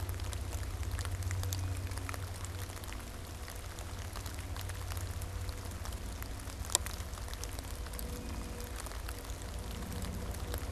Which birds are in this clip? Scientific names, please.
Cyanocitta cristata